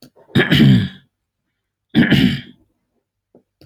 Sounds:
Throat clearing